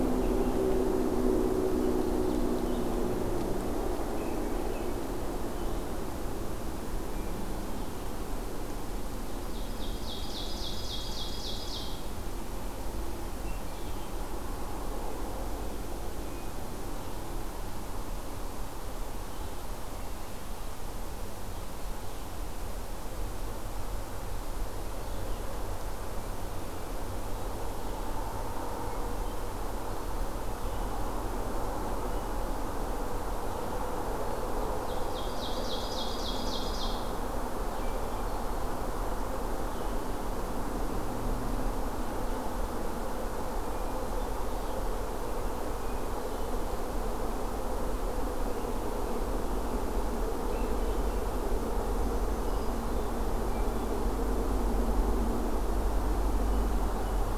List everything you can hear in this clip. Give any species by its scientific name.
Vireo olivaceus, Catharus ustulatus, Seiurus aurocapilla, Catharus guttatus